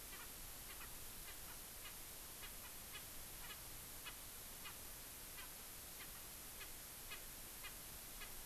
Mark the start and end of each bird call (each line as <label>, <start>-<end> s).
Erckel's Francolin (Pternistis erckelii), 0.6-0.7 s
Erckel's Francolin (Pternistis erckelii), 1.2-1.5 s
Erckel's Francolin (Pternistis erckelii), 1.8-1.9 s
Erckel's Francolin (Pternistis erckelii), 2.4-3.0 s
Erckel's Francolin (Pternistis erckelii), 3.4-3.5 s
Erckel's Francolin (Pternistis erckelii), 4.0-4.1 s
Erckel's Francolin (Pternistis erckelii), 4.6-4.7 s
Erckel's Francolin (Pternistis erckelii), 5.3-5.4 s
Erckel's Francolin (Pternistis erckelii), 5.9-6.0 s
Erckel's Francolin (Pternistis erckelii), 6.5-6.6 s
Erckel's Francolin (Pternistis erckelii), 7.0-7.1 s
Erckel's Francolin (Pternistis erckelii), 7.6-7.7 s
Erckel's Francolin (Pternistis erckelii), 8.1-8.2 s